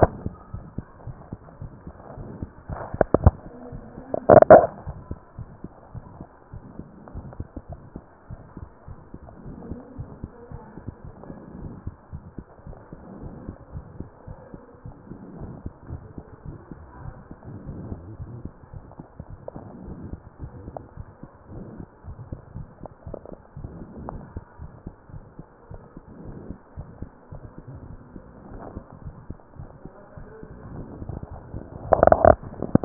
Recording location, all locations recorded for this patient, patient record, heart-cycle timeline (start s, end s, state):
tricuspid valve (TV)
aortic valve (AV)+pulmonary valve (PV)+tricuspid valve (TV)+mitral valve (MV)
#Age: Child
#Sex: Male
#Height: 87.0 cm
#Weight: 11.2 kg
#Pregnancy status: False
#Murmur: Present
#Murmur locations: aortic valve (AV)+mitral valve (MV)+pulmonary valve (PV)+tricuspid valve (TV)
#Most audible location: pulmonary valve (PV)
#Systolic murmur timing: Early-systolic
#Systolic murmur shape: Plateau
#Systolic murmur grading: II/VI
#Systolic murmur pitch: Low
#Systolic murmur quality: Harsh
#Diastolic murmur timing: nan
#Diastolic murmur shape: nan
#Diastolic murmur grading: nan
#Diastolic murmur pitch: nan
#Diastolic murmur quality: nan
#Outcome: Abnormal
#Campaign: 2015 screening campaign
0.00	5.92	unannotated
5.92	6.02	S1
6.02	6.14	systole
6.14	6.26	S2
6.26	6.52	diastole
6.52	6.66	S1
6.66	6.76	systole
6.76	6.88	S2
6.88	7.14	diastole
7.14	7.26	S1
7.26	7.38	systole
7.38	7.48	S2
7.48	7.68	diastole
7.68	7.82	S1
7.82	7.94	systole
7.94	8.04	S2
8.04	8.30	diastole
8.30	8.42	S1
8.42	8.58	systole
8.58	8.68	S2
8.68	8.87	diastole
8.87	9.00	S1
9.00	9.12	systole
9.12	9.22	S2
9.22	9.44	diastole
9.44	9.58	S1
9.58	9.64	systole
9.64	9.78	S2
9.78	9.98	diastole
9.98	10.10	S1
10.10	10.22	systole
10.22	10.32	S2
10.32	10.50	diastole
10.50	10.64	S1
10.64	10.74	systole
10.74	10.84	S2
10.84	11.04	diastole
11.04	11.16	S1
11.16	11.28	systole
11.28	11.38	S2
11.38	11.60	diastole
11.60	11.74	S1
11.74	11.86	systole
11.86	11.96	S2
11.96	12.12	diastole
12.12	12.24	S1
12.24	12.36	systole
12.36	12.46	S2
12.46	12.68	diastole
12.68	12.78	S1
12.78	12.90	systole
12.90	13.00	S2
13.00	13.20	diastole
13.20	13.34	S1
13.34	13.44	systole
13.44	13.54	S2
13.54	13.74	diastole
13.74	13.84	S1
13.84	13.94	systole
13.94	14.08	S2
14.08	14.30	diastole
14.30	14.40	S1
14.40	14.54	systole
14.54	14.64	S2
14.64	14.86	diastole
14.86	14.94	S1
14.94	15.08	systole
15.08	15.18	S2
15.18	15.38	diastole
15.38	15.56	S1
15.56	15.62	systole
15.62	15.72	S2
15.72	15.90	diastole
15.90	16.06	S1
16.06	16.16	systole
16.16	16.26	S2
16.26	16.45	diastole
16.45	16.62	S1
16.62	16.70	systole
16.70	16.78	S2
16.78	17.00	diastole
17.00	17.13	S1
17.13	17.27	systole
17.27	17.35	S2
17.35	17.66	diastole
17.66	17.73	S1
17.73	17.90	systole
17.90	17.98	S2
17.98	18.16	S1
18.16	18.30	S1
18.30	18.44	systole
18.44	18.50	S2
18.50	18.74	diastole
18.74	18.84	S1
18.84	18.97	systole
18.97	19.04	S2
19.04	19.30	diastole
19.30	19.40	S1
19.40	19.54	systole
19.54	19.64	S2
19.64	19.86	diastole
19.86	19.98	S1
19.98	20.10	systole
20.10	20.20	S2
20.20	20.42	diastole
20.42	20.56	S1
20.56	20.66	systole
20.66	20.76	S2
20.76	20.98	diastole
20.98	21.10	S1
21.10	21.22	systole
21.22	21.30	S2
21.30	21.49	diastole
21.49	32.85	unannotated